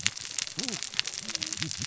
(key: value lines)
label: biophony, cascading saw
recorder: SoundTrap 600 or HydroMoth